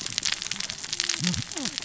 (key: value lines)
label: biophony, cascading saw
recorder: SoundTrap 600 or HydroMoth